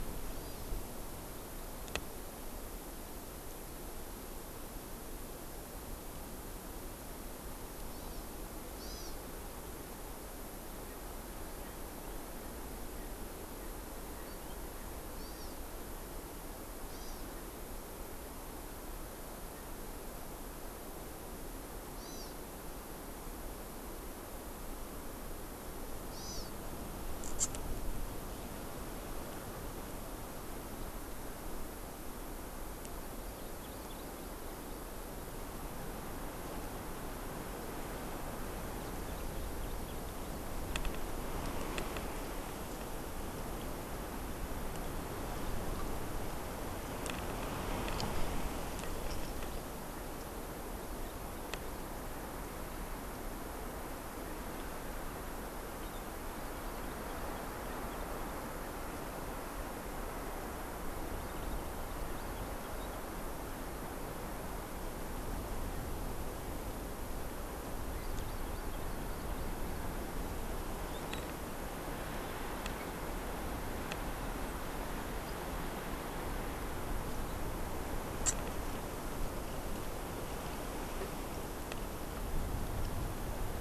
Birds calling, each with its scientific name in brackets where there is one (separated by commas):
Erckel's Francolin (Pternistis erckelii), Hawaii Amakihi (Chlorodrepanis virens)